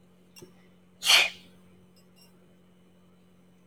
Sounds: Sneeze